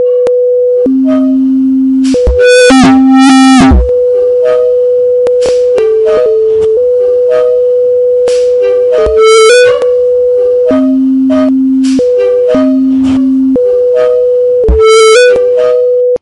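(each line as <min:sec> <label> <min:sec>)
0:00.0 Loud rhythmic beeping tones created by a synthesizer. 0:16.2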